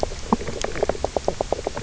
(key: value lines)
label: biophony, knock croak
recorder: SoundTrap 300